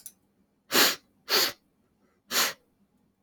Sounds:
Sniff